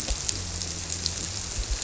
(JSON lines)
{"label": "biophony", "recorder": "SoundTrap 300"}